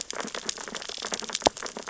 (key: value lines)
label: biophony, sea urchins (Echinidae)
recorder: SoundTrap 600 or HydroMoth